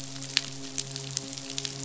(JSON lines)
{"label": "biophony, midshipman", "recorder": "SoundTrap 500"}